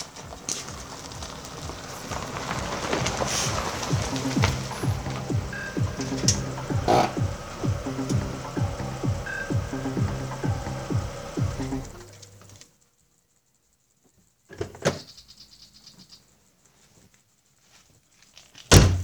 Are they in a kitchen?
no